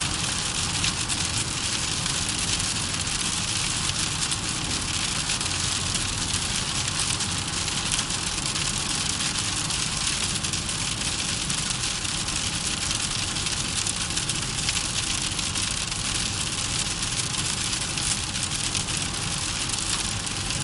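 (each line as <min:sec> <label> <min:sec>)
0:00.0 Rain hits a hard surface loudly and continuously. 0:20.6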